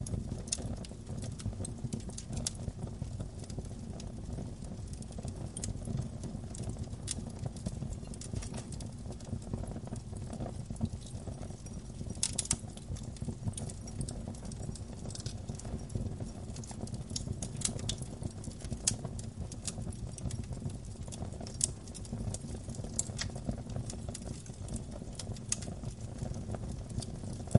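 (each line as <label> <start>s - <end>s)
A continuous sound of flames in a chimney with occasional crackling noises, creating a calm and steady ambiance. 0.1s - 27.6s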